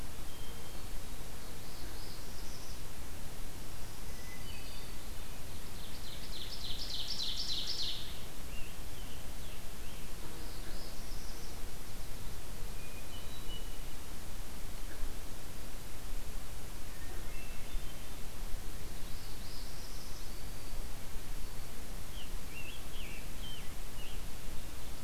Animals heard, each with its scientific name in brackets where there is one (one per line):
Hermit Thrush (Catharus guttatus)
Scarlet Tanager (Piranga olivacea)
Northern Parula (Setophaga americana)
Black-throated Green Warbler (Setophaga virens)
Ovenbird (Seiurus aurocapilla)